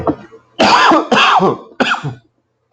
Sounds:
Cough